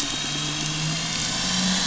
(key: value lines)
label: anthrophony, boat engine
recorder: SoundTrap 500